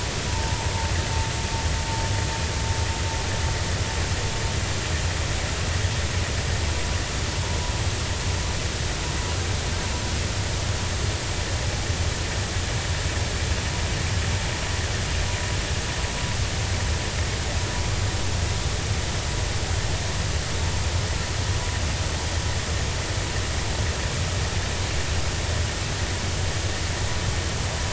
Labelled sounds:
0.3	0.6	vessel noise, 0.83 to 1.1 kHz

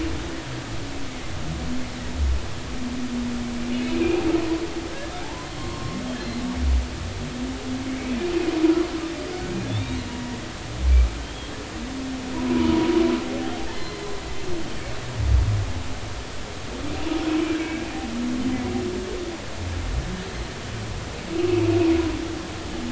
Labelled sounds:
3.9	4.2	humpback whale, 2.3 to 2.7 kHz
5.2	6.0	humpback whale, 0.80 to 1.1 kHz
7.9	8.1	humpback whale, 2.0 to 2.4 kHz
9.7	10.0	humpback whale, 3.4 to 3.8 kHz
13.7	14.1	humpback whale, 2.0 to 4.2 kHz
17.3	17.9	humpback whale, 1.6 to 2.4 kHz

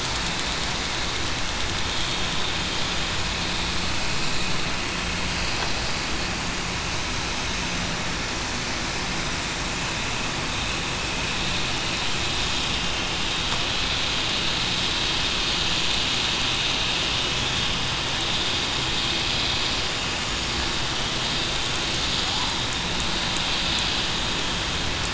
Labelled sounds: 17.3	17.7	vessel noise, 3.2 to 3.4 kHz

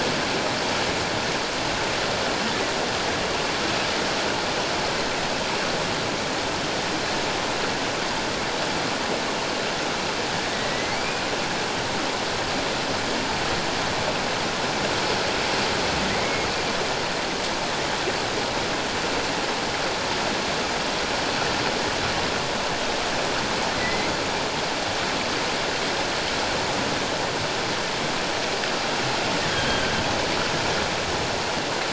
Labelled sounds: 10.5	11.3	humpback whale, 1.9 to 2.6 kHz
23.7	24.1	humpback whale, 1.9 to 2.2 kHz
29.5	29.9	humpback whale, 1.5 to 3.3 kHz

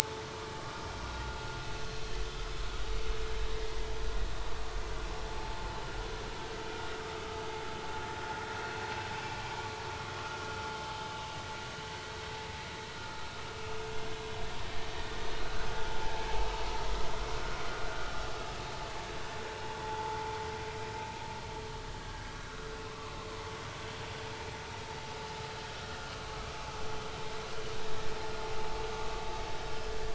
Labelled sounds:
0.6	0.9	vessel noise, 1.1 to 1.3 kHz
13.0	13.3	vessel noise, 1.2 to 1.4 kHz
17.7	18.1	vessel noise, 1.4 to 1.5 kHz
19.8	20.2	vessel noise, 0.83 to 1.1 kHz
22.9	23.1	vessel noise, 0.99 to 1.3 kHz

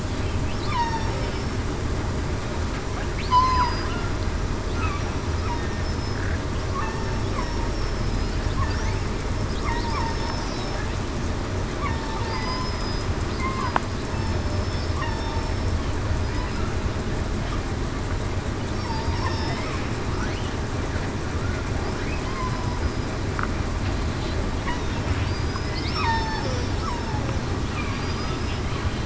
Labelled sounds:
0.7	1.1	killer whale, southern resident, 0.87 to 1.2 kHz
3.3	3.7	killer whale, southern resident, 0.91 to 1.1 kHz
5.8	6.2	killer whale, southern resident, 5.2 to 5.3 kHz
6.9	7.3	killer whale, southern resident, 5.4 to 5.5 kHz
7.7	8.1	killer whale, southern resident, 5.2 to 5.5 kHz
9.7	10.8	killer whale, southern resident, 5.2 to 5.5 kHz
11.9	12.7	killer whale, southern resident, 0.87 to 2.1 kHz
14.4	15.6	killer whale, southern resident, 5.2 to 5.6 kHz
18.8	19.2	killer whale, southern resident, 4.7 to 4.9 kHz
25.2	26.6	killer whale, southern resident, 0.80 to 5.5 kHz

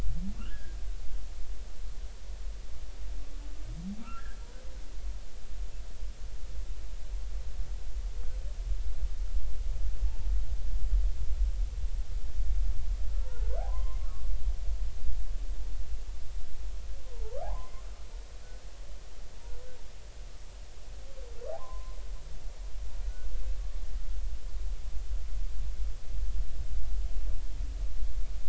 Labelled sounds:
0.4	0.8	humpback whale, 1.1 to 1.8 kHz
4.0	4.3	humpback whale, 1.2 to 1.4 kHz
13.2	14.0	humpback whale, 0.83 to 1.2 kHz
17.1	17.8	humpback whale, 0.80 to 2.2 kHz
21.5	22.0	humpback whale, 0.80 to 1.1 kHz

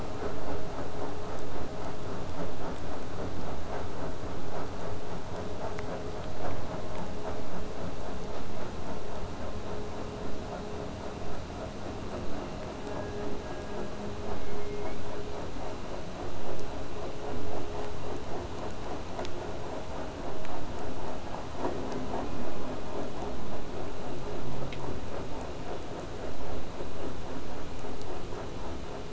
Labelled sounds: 14.4	15.0	killer whale, southern resident, 1.9 to 4.1 kHz

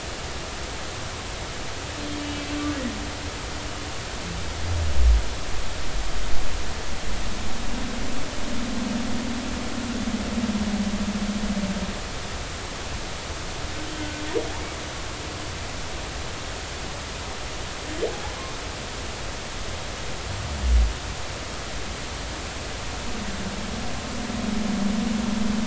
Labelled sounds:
13.9	14.2	humpback whale, 1.5 to 1.6 kHz

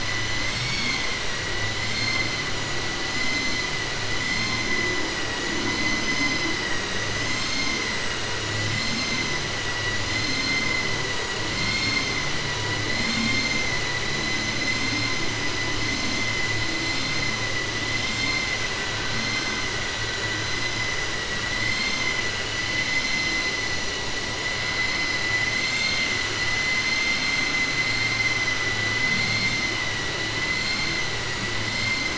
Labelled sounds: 17.9	18.4	vessel noise, 1.2 to 5.2 kHz

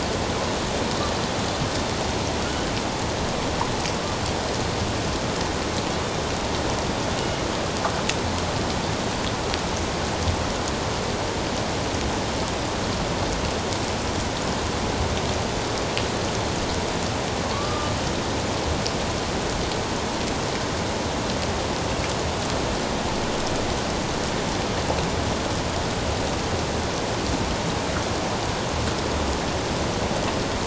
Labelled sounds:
7.2	7.4	killer whale, northern resident, A clan, AB subclan, 2.8 to 2.9 kHz
17.5	17.9	killer whale, northern resident, A clan, AB subclan, 1.1 to 1.2 kHz

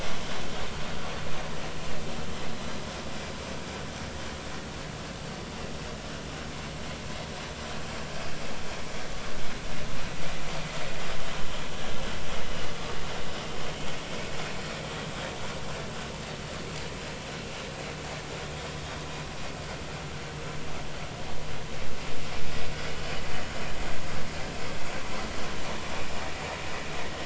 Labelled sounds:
22.8	23.1	vessel noise, 2.9 to 3.1 kHz

